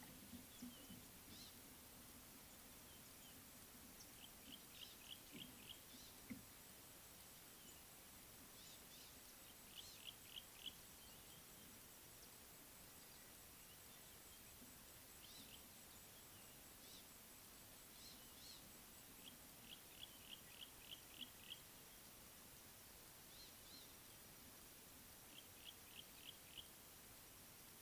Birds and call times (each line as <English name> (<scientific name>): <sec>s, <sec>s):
Eastern Violet-backed Sunbird (Anthreptes orientalis): 1.3s, 18.1s
Yellow-breasted Apalis (Apalis flavida): 10.3s, 25.9s